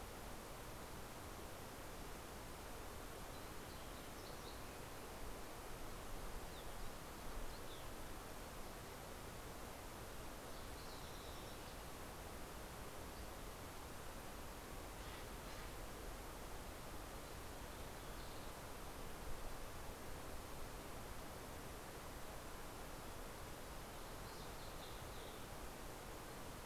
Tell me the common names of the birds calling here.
Fox Sparrow, Steller's Jay